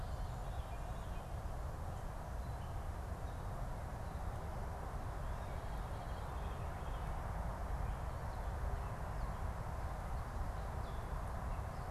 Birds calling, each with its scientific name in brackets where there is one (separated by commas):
Veery (Catharus fuscescens)